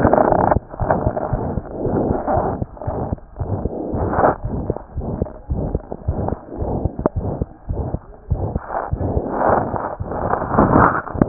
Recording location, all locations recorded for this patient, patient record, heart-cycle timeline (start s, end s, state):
pulmonary valve (PV)
aortic valve (AV)+pulmonary valve (PV)+tricuspid valve (TV)+mitral valve (MV)
#Age: Child
#Sex: Male
#Height: 89.0 cm
#Weight: 11.6 kg
#Pregnancy status: False
#Murmur: Present
#Murmur locations: aortic valve (AV)+mitral valve (MV)+pulmonary valve (PV)+tricuspid valve (TV)
#Most audible location: aortic valve (AV)
#Systolic murmur timing: Mid-systolic
#Systolic murmur shape: Diamond
#Systolic murmur grading: III/VI or higher
#Systolic murmur pitch: High
#Systolic murmur quality: Harsh
#Diastolic murmur timing: nan
#Diastolic murmur shape: nan
#Diastolic murmur grading: nan
#Diastolic murmur pitch: nan
#Diastolic murmur quality: nan
#Outcome: Abnormal
#Campaign: 2015 screening campaign
0.00	4.94	unannotated
4.94	5.08	S1
5.08	5.18	systole
5.18	5.28	S2
5.28	5.47	diastole
5.47	5.59	S1
5.59	5.72	systole
5.72	5.82	S2
5.82	6.05	diastole
6.05	6.16	S1
6.16	6.29	systole
6.29	6.38	S2
6.38	6.59	diastole
6.59	6.70	S1
6.70	6.82	systole
6.82	6.92	S2
6.92	7.15	diastole
7.15	7.23	S1
7.23	7.38	systole
7.38	7.48	S2
7.48	7.66	diastole
7.66	7.77	S1
7.77	7.91	systole
7.91	8.00	S2
8.00	8.29	diastole
8.29	8.40	S1
8.40	8.53	systole
8.53	8.62	S2
8.62	8.90	diastole
8.90	9.00	S1
9.00	9.15	systole
9.15	9.23	S2
9.23	11.28	unannotated